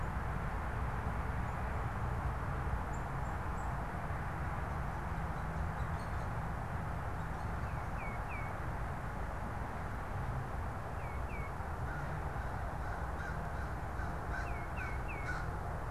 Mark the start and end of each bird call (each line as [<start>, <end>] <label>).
[2.79, 3.79] Black-capped Chickadee (Poecile atricapillus)
[7.49, 8.59] Tufted Titmouse (Baeolophus bicolor)
[10.69, 11.59] Tufted Titmouse (Baeolophus bicolor)
[11.29, 15.89] American Crow (Corvus brachyrhynchos)
[14.39, 15.29] Tufted Titmouse (Baeolophus bicolor)